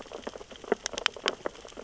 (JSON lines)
{"label": "biophony, sea urchins (Echinidae)", "recorder": "SoundTrap 600 or HydroMoth"}